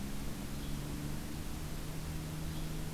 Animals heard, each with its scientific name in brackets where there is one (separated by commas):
Yellow-bellied Flycatcher (Empidonax flaviventris)